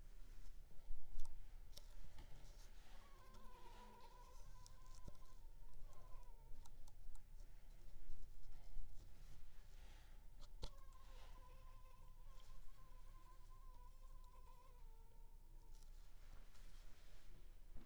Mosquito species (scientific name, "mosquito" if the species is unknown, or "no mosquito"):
Culex pipiens complex